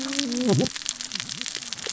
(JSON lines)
{"label": "biophony, cascading saw", "recorder": "SoundTrap 600 or HydroMoth"}